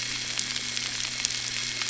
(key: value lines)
label: anthrophony, boat engine
recorder: SoundTrap 300